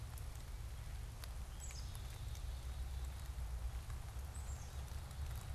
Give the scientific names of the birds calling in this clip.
Poecile atricapillus